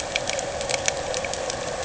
{"label": "anthrophony, boat engine", "recorder": "HydroMoth"}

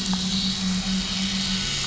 {"label": "anthrophony, boat engine", "recorder": "SoundTrap 500"}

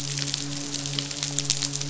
{"label": "biophony, midshipman", "recorder": "SoundTrap 500"}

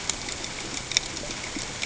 {"label": "ambient", "recorder": "HydroMoth"}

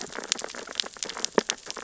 {"label": "biophony, sea urchins (Echinidae)", "recorder": "SoundTrap 600 or HydroMoth"}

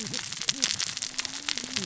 {"label": "biophony, cascading saw", "recorder": "SoundTrap 600 or HydroMoth"}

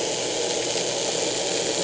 {"label": "anthrophony, boat engine", "recorder": "HydroMoth"}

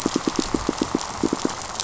{"label": "biophony, pulse", "recorder": "SoundTrap 500"}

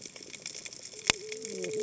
{"label": "biophony, cascading saw", "recorder": "HydroMoth"}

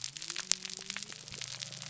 {"label": "biophony", "recorder": "SoundTrap 300"}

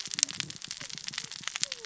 {"label": "biophony, cascading saw", "recorder": "SoundTrap 600 or HydroMoth"}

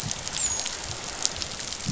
{"label": "biophony, dolphin", "recorder": "SoundTrap 500"}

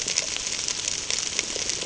{"label": "ambient", "recorder": "HydroMoth"}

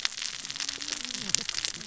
{"label": "biophony, cascading saw", "recorder": "SoundTrap 600 or HydroMoth"}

